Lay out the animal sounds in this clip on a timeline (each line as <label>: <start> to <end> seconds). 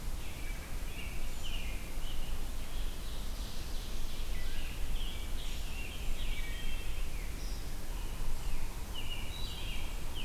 American Robin (Turdus migratorius): 0.0 to 2.5 seconds
Ovenbird (Seiurus aurocapilla): 2.6 to 4.8 seconds
Scarlet Tanager (Piranga olivacea): 4.2 to 6.6 seconds
Wood Thrush (Hylocichla mustelina): 6.2 to 7.1 seconds
Yellow-bellied Sapsucker (Sphyrapicus varius): 7.7 to 10.2 seconds
American Robin (Turdus migratorius): 8.1 to 10.2 seconds
Wood Thrush (Hylocichla mustelina): 9.2 to 10.0 seconds